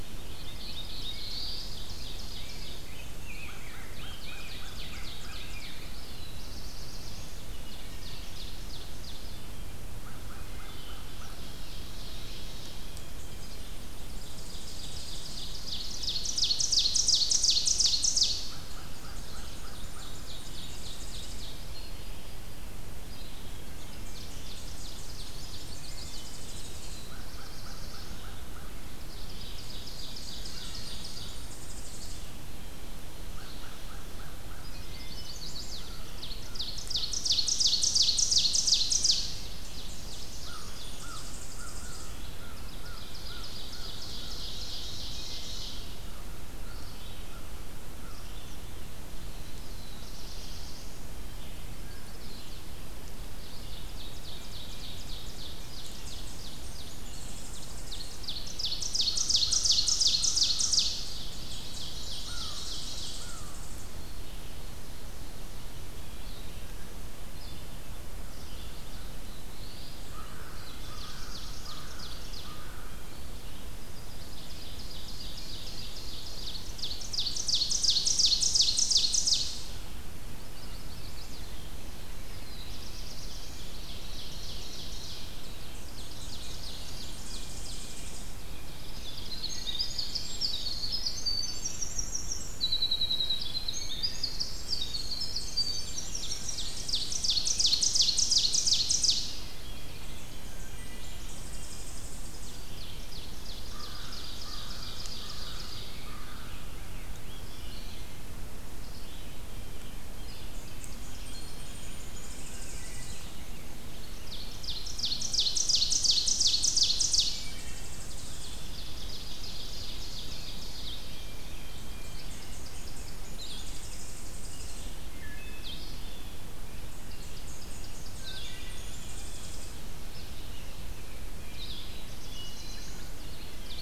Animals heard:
Black-and-white Warbler (Mniotilta varia)
Red-eyed Vireo (Vireo olivaceus)
Black-throated Blue Warbler (Setophaga caerulescens)
Chestnut-sided Warbler (Setophaga pensylvanica)
Rose-breasted Grosbeak (Pheucticus ludovicianus)
Tennessee Warbler (Leiothlypis peregrina)
Ovenbird (Seiurus aurocapilla)
Wood Thrush (Hylocichla mustelina)
American Crow (Corvus brachyrhynchos)
Blue Jay (Cyanocitta cristata)
Winter Wren (Troglodytes hiemalis)
Blue-headed Vireo (Vireo solitarius)

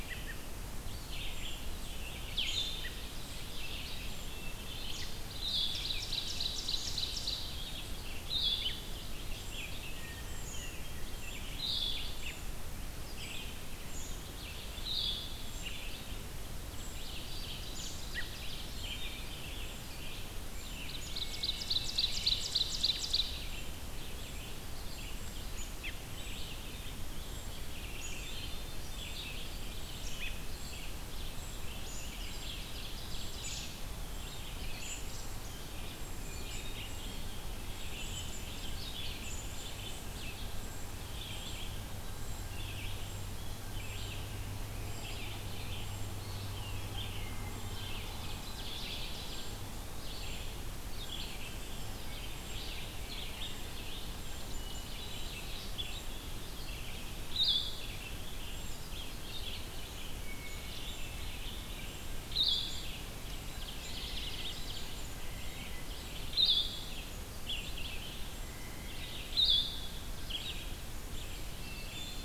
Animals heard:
Red-eyed Vireo (Vireo olivaceus)
Hermit Thrush (Catharus guttatus)
Blue-headed Vireo (Vireo solitarius)
Eastern Wood-Pewee (Contopus virens)
Ovenbird (Seiurus aurocapilla)
American Robin (Turdus migratorius)
Blue Jay (Cyanocitta cristata)
unidentified call

